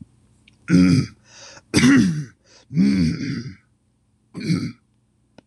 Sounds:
Throat clearing